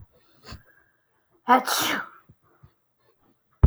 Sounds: Sneeze